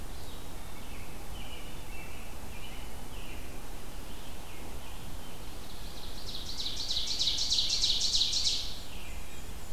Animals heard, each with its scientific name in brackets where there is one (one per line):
Scarlet Tanager (Piranga olivacea)
Tufted Titmouse (Baeolophus bicolor)
Black-and-white Warbler (Mniotilta varia)
Blue Jay (Cyanocitta cristata)
American Robin (Turdus migratorius)
Ovenbird (Seiurus aurocapilla)